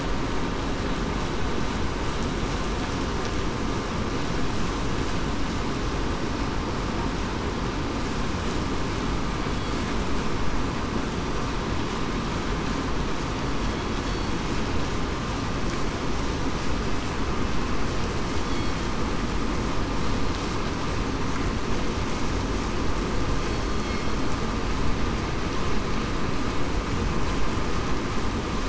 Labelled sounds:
18.4	18.8	killer whale, southern resident, 3.3 to 3.5 kHz

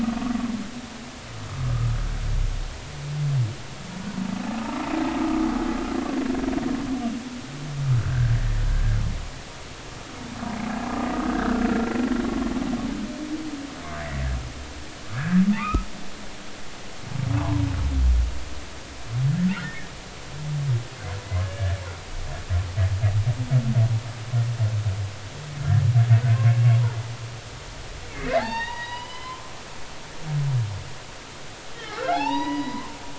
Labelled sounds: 4.6	5.5	humpback whale, 1.1 to 1.4 kHz
8.0	8.6	humpback whale, 1.3 to 1.9 kHz
11.3	11.7	humpback whale, 1.3 to 1.7 kHz
15.2	15.9	humpback whale, 1.1 to 2.7 kHz
17.4	17.7	humpback whale, 0.80 to 1.2 kHz
19.6	19.9	humpback whale, 1.6 to 2.0 kHz
21.4	21.8	humpback whale, 1.6 to 1.8 kHz
26.2	26.5	humpback whale, 1.4 to 1.6 kHz
28.4	29.4	humpback whale, 0.80 to 5.1 kHz
31.7	32.9	humpback whale, 0.80 to 5.9 kHz

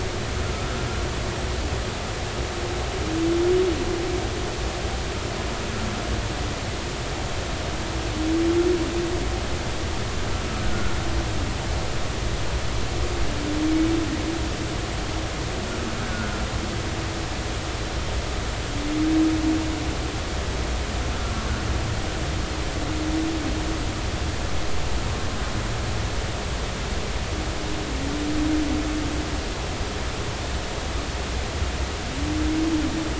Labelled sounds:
10.6	10.9	humpback whale, 1.3 to 1.6 kHz
16.0	16.3	humpback whale, 1.4 to 1.5 kHz

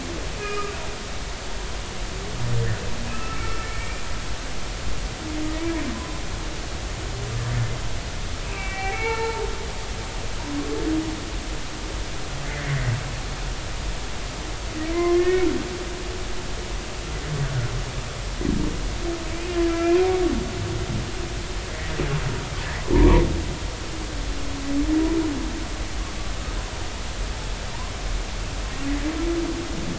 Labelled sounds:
0.4	0.8	humpback whale, 1.2 to 2.6 kHz
3.1	4.1	humpback whale, 1.2 to 2.7 kHz
8.4	9.5	humpback whale, 0.83 to 2.8 kHz
10.0	10.4	humpback whale, 1.7 to 4.2 kHz
12.4	12.7	humpback whale, 1.7 to 1.8 kHz
14.9	15.5	humpback whale, 0.99 to 2.3 kHz
19.3	20.0	humpback whale, 2.2 to 2.6 kHz

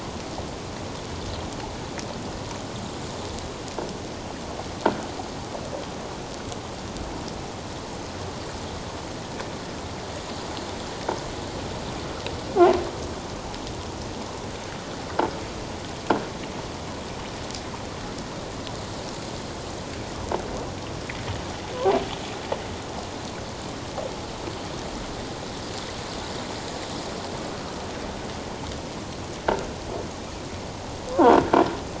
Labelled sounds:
31.1	31.5	croaking sound likely from a nearby submerged object, 0.78 to 1.6 kHz

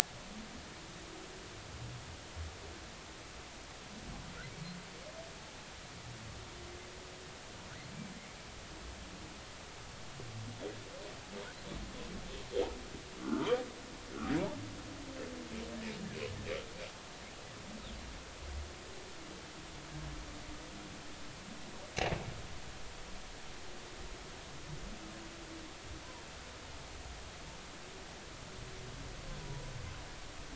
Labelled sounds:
13.2	13.5	humpback whale, 1.0 to 1.5 kHz

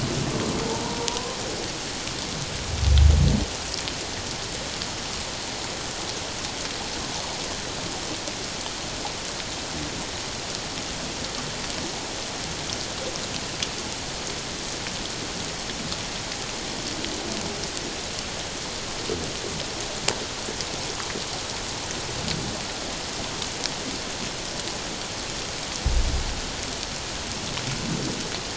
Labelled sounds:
0.8	1.4	humpback whale, 0.88 to 1.1 kHz

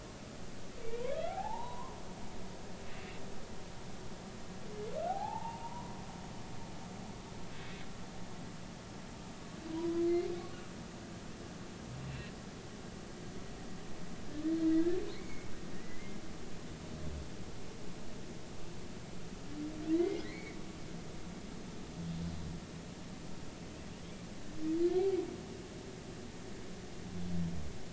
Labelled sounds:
1.3	2.0	humpback whale, 0.80 to 1.1 kHz
5.1	6.0	humpback whale, 0.80 to 1.1 kHz
9.7	10.0	humpback whale, 0.93 to 1.1 kHz
12.0	12.3	humpback whale, 2.6 to 2.8 kHz
15.1	16.2	humpback whale, 1.8 to 2.3 kHz
19.9	20.6	humpback whale, 1.8 to 4.5 kHz

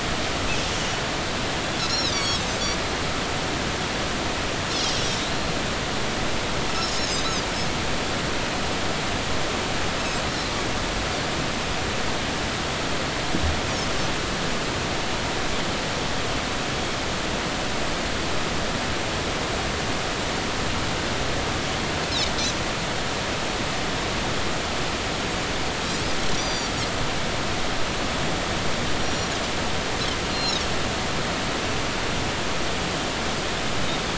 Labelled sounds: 1.8	2.4	Pacific white-sided dolphin, 3.2 to 6.9 kHz
7.0	7.3	Pacific white-sided dolphin, 6.0 to 6.8 kHz
26.3	26.7	Pacific white-sided dolphin, 4.5 to 6.0 kHz
29.0	29.3	Pacific white-sided dolphin, 5.6 to 5.8 kHz
30.3	30.6	Pacific white-sided dolphin, 3.7 to 4.3 kHz

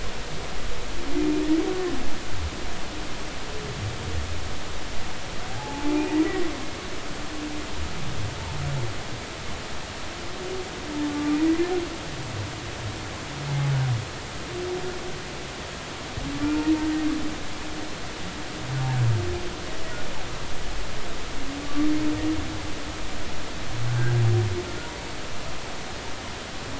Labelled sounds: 5.5	6.5	humpback whale, 0.80 to 2.5 kHz
11.1	11.4	humpback whale, 1.1 to 1.2 kHz
16.4	16.7	humpback whale, 1.3 to 1.4 kHz
21.6	21.9	humpback whale, 1.1 to 1.2 kHz
23.9	24.1	humpback whale, 1.4 to 1.7 kHz

